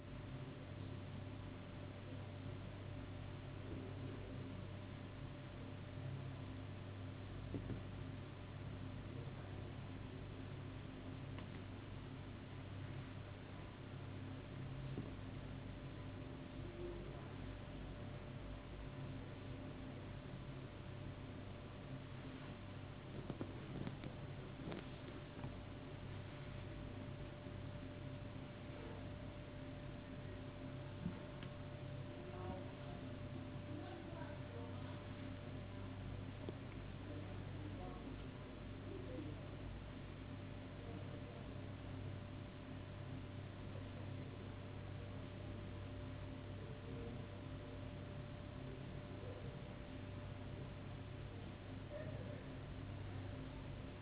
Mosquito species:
no mosquito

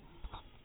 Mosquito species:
mosquito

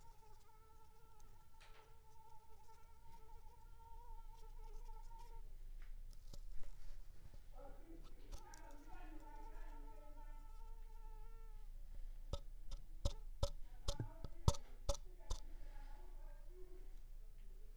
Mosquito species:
Anopheles squamosus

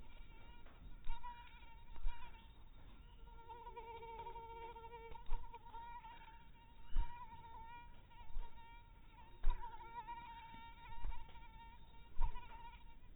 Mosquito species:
mosquito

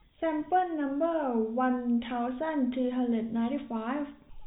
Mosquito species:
no mosquito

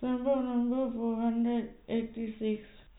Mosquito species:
no mosquito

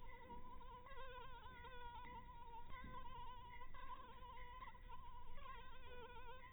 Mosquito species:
mosquito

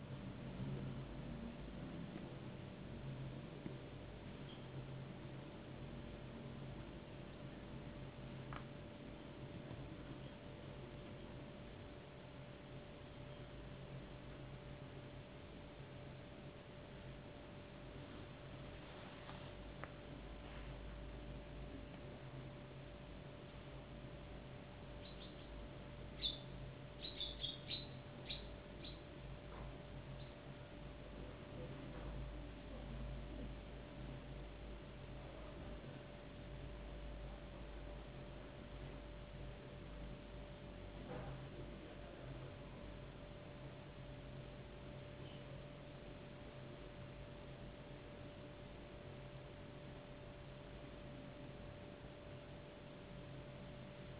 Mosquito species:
no mosquito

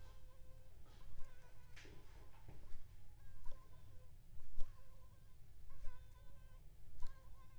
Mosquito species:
Aedes aegypti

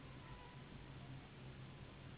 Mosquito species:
Anopheles gambiae s.s.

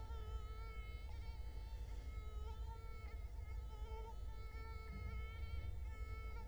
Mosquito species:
Culex quinquefasciatus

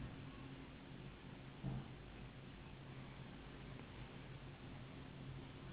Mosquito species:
Anopheles gambiae s.s.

